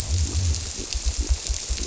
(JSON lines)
{"label": "biophony", "recorder": "SoundTrap 300"}